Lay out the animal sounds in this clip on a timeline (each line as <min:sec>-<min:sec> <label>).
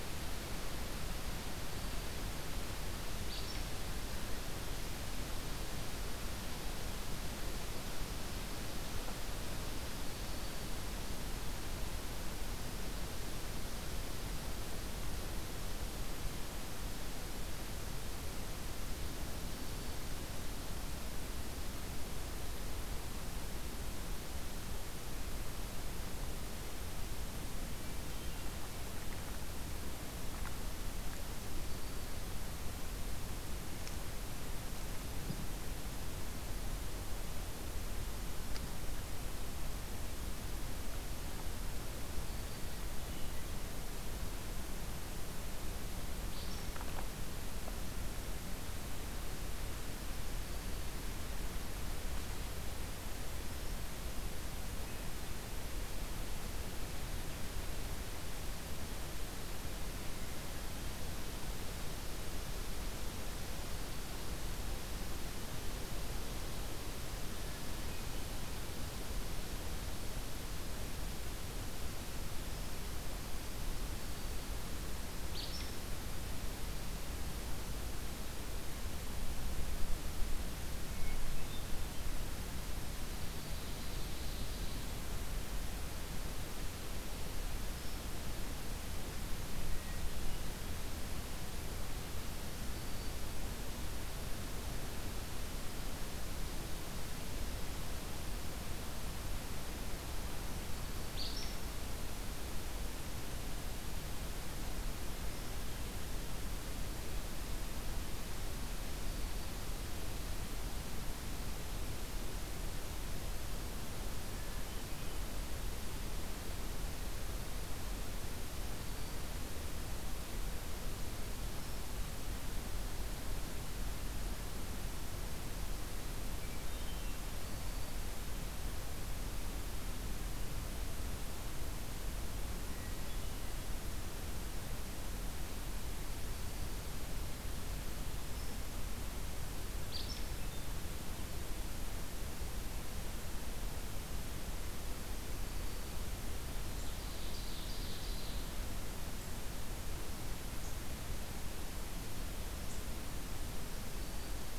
0:01.6-0:02.3 Black-throated Green Warbler (Setophaga virens)
0:03.2-0:03.6 Acadian Flycatcher (Empidonax virescens)
0:09.7-0:10.7 Black-throated Green Warbler (Setophaga virens)
0:31.3-0:32.3 Black-throated Green Warbler (Setophaga virens)
0:42.0-0:42.8 Black-throated Green Warbler (Setophaga virens)
0:46.3-0:46.7 Acadian Flycatcher (Empidonax virescens)
1:13.8-1:14.5 Black-throated Green Warbler (Setophaga virens)
1:15.2-1:15.7 Acadian Flycatcher (Empidonax virescens)
1:20.7-1:21.8 Hermit Thrush (Catharus guttatus)
1:23.1-1:25.0 Ovenbird (Seiurus aurocapilla)
1:32.4-1:33.2 Black-throated Green Warbler (Setophaga virens)
1:41.1-1:41.5 Acadian Flycatcher (Empidonax virescens)
1:58.5-1:59.2 Black-throated Green Warbler (Setophaga virens)
2:06.4-2:07.1 Hermit Thrush (Catharus guttatus)
2:07.3-2:07.9 Black-throated Green Warbler (Setophaga virens)
2:12.7-2:13.6 Hermit Thrush (Catharus guttatus)
2:16.1-2:17.1 Black-throated Green Warbler (Setophaga virens)
2:19.8-2:20.3 Acadian Flycatcher (Empidonax virescens)
2:25.1-2:26.1 Black-throated Green Warbler (Setophaga virens)
2:26.7-2:28.5 Ovenbird (Seiurus aurocapilla)
2:33.6-2:34.6 Black-throated Green Warbler (Setophaga virens)